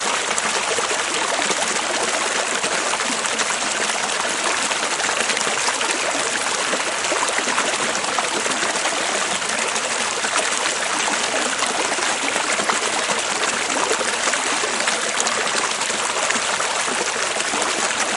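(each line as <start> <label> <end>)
0.0 A close, loud, and continuous sound of flowing water. 18.2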